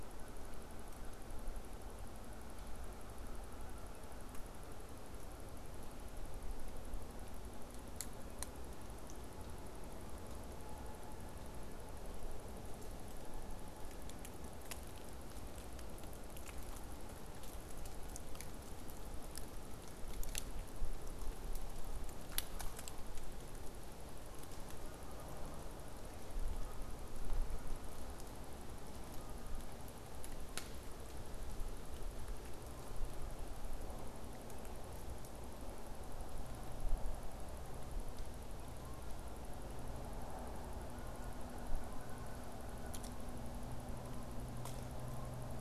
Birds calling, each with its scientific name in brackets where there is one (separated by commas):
Canada Goose (Branta canadensis)